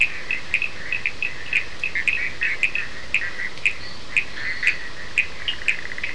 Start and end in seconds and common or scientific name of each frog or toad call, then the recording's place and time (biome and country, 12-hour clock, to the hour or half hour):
0.0	6.1	Bischoff's tree frog
0.0	6.1	Cochran's lime tree frog
3.6	5.0	fine-lined tree frog
Atlantic Forest, Brazil, 3:30am